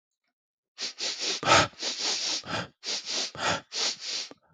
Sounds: Sniff